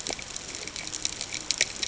{"label": "ambient", "recorder": "HydroMoth"}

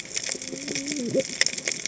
{"label": "biophony, cascading saw", "recorder": "HydroMoth"}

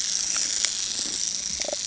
{"label": "anthrophony, boat engine", "recorder": "HydroMoth"}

